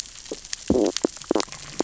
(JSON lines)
{"label": "biophony, stridulation", "recorder": "SoundTrap 600 or HydroMoth"}